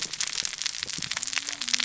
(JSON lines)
{"label": "biophony, cascading saw", "recorder": "SoundTrap 600 or HydroMoth"}